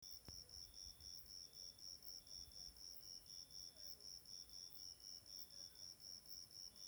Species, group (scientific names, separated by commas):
Eumodicogryllus bordigalensis, Orthoptera